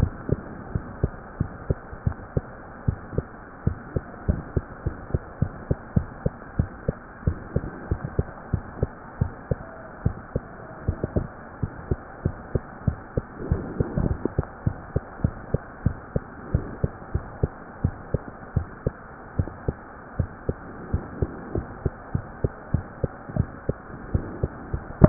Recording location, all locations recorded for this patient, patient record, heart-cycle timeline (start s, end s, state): mitral valve (MV)
aortic valve (AV)+pulmonary valve (PV)+tricuspid valve (TV)+mitral valve (MV)
#Age: Child
#Sex: Female
#Height: 108.0 cm
#Weight: 16.2 kg
#Pregnancy status: False
#Murmur: Present
#Murmur locations: aortic valve (AV)+mitral valve (MV)+pulmonary valve (PV)+tricuspid valve (TV)
#Most audible location: pulmonary valve (PV)
#Systolic murmur timing: Early-systolic
#Systolic murmur shape: Decrescendo
#Systolic murmur grading: II/VI
#Systolic murmur pitch: Medium
#Systolic murmur quality: Blowing
#Diastolic murmur timing: nan
#Diastolic murmur shape: nan
#Diastolic murmur grading: nan
#Diastolic murmur pitch: nan
#Diastolic murmur quality: nan
#Outcome: Abnormal
#Campaign: 2015 screening campaign
0.00	0.70	unannotated
0.70	0.84	S1
0.84	0.98	systole
0.98	1.12	S2
1.12	1.38	diastole
1.38	1.52	S1
1.52	1.68	systole
1.68	1.80	S2
1.80	2.02	diastole
2.02	2.18	S1
2.18	2.36	systole
2.36	2.50	S2
2.50	2.80	diastole
2.80	2.98	S1
2.98	3.16	systole
3.16	3.32	S2
3.32	3.62	diastole
3.62	3.78	S1
3.78	3.92	systole
3.92	4.04	S2
4.04	4.28	diastole
4.28	4.44	S1
4.44	4.52	systole
4.52	4.64	S2
4.64	4.82	diastole
4.82	4.94	S1
4.94	5.10	systole
5.10	5.22	S2
5.22	5.40	diastole
5.40	5.54	S1
5.54	5.66	systole
5.66	5.80	S2
5.80	5.94	diastole
5.94	6.05	S1
6.05	6.24	systole
6.24	6.34	S2
6.34	6.54	diastole
6.54	6.70	S1
6.70	6.84	systole
6.84	6.98	S2
6.98	7.22	diastole
7.22	7.38	S1
7.38	7.52	systole
7.52	7.64	S2
7.64	7.88	diastole
7.88	8.02	S1
8.02	8.16	systole
8.16	8.28	S2
8.28	8.52	diastole
8.52	8.64	S1
8.64	8.80	systole
8.80	8.92	S2
8.92	9.20	diastole
9.20	9.34	S1
9.34	9.50	systole
9.50	9.60	S2
9.60	10.02	diastole
10.02	10.14	S1
10.14	10.34	systole
10.34	10.43	S2
10.43	10.84	diastole
10.84	11.00	S1
11.00	11.14	systole
11.14	11.30	S2
11.30	11.60	diastole
11.60	11.72	S1
11.72	11.88	systole
11.88	11.98	S2
11.98	12.23	diastole
12.23	12.36	S1
12.36	12.53	systole
12.53	12.62	S2
12.62	12.86	diastole
12.86	13.00	S1
13.00	13.16	systole
13.16	13.24	S2
13.24	13.48	diastole
13.48	13.60	S1
13.60	13.77	systole
13.77	13.85	S2
13.85	25.09	unannotated